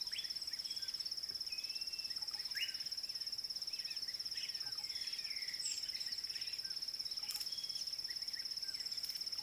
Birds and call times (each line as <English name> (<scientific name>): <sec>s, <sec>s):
Blue-naped Mousebird (Urocolius macrourus): 1.6s
White Helmetshrike (Prionops plumatus): 7.4s